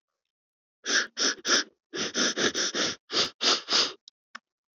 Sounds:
Sniff